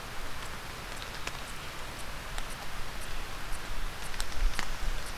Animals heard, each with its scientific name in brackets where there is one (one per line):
Northern Parula (Setophaga americana)